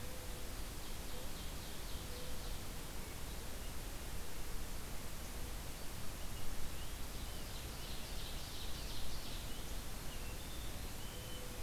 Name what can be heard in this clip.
Mourning Dove, Ovenbird, Hermit Thrush, Rose-breasted Grosbeak